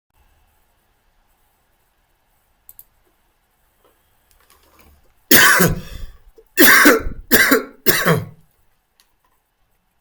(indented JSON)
{
  "expert_labels": [
    {
      "quality": "good",
      "cough_type": "dry",
      "dyspnea": false,
      "wheezing": false,
      "stridor": false,
      "choking": false,
      "congestion": false,
      "nothing": true,
      "diagnosis": "healthy cough",
      "severity": "pseudocough/healthy cough"
    }
  ],
  "age": 50,
  "gender": "male",
  "respiratory_condition": false,
  "fever_muscle_pain": false,
  "status": "healthy"
}